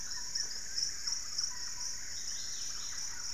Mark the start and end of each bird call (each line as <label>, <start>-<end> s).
Yellow-margined Flycatcher (Tolmomyias assimilis), 0.0-0.5 s
Wing-barred Piprites (Piprites chloris), 0.0-1.0 s
Black-fronted Nunbird (Monasa nigrifrons), 0.0-3.3 s
Undulated Tinamou (Crypturellus undulatus), 0.2-1.7 s
Dusky-capped Greenlet (Pachysylvia hypoxantha), 2.1-3.3 s
Thrush-like Wren (Campylorhynchus turdinus), 2.8-3.3 s